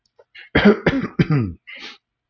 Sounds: Throat clearing